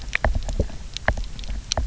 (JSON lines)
{"label": "biophony, knock", "recorder": "SoundTrap 300"}